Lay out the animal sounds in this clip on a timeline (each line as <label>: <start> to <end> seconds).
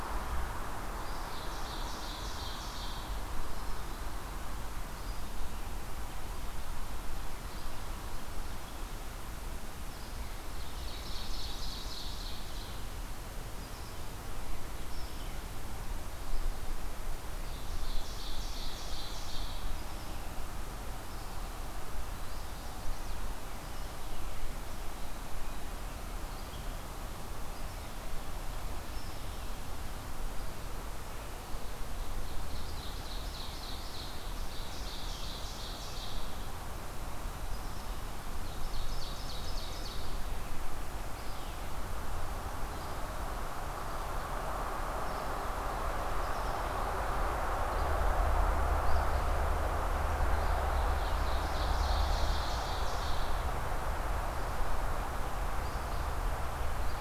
Red-eyed Vireo (Vireo olivaceus): 0.0 to 44.5 seconds
Ovenbird (Seiurus aurocapilla): 1.0 to 3.2 seconds
Ovenbird (Seiurus aurocapilla): 10.2 to 12.9 seconds
Ovenbird (Seiurus aurocapilla): 17.2 to 19.7 seconds
Chestnut-sided Warbler (Setophaga pensylvanica): 22.1 to 23.2 seconds
Ovenbird (Seiurus aurocapilla): 32.0 to 36.6 seconds
Ovenbird (Seiurus aurocapilla): 38.3 to 40.1 seconds
Red-eyed Vireo (Vireo olivaceus): 44.9 to 57.0 seconds
Ovenbird (Seiurus aurocapilla): 50.5 to 53.6 seconds